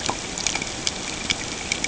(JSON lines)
{"label": "ambient", "recorder": "HydroMoth"}